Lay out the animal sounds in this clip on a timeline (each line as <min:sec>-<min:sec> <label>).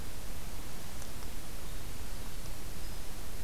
0:01.5-0:03.4 Winter Wren (Troglodytes hiemalis)